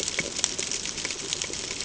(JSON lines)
{"label": "ambient", "recorder": "HydroMoth"}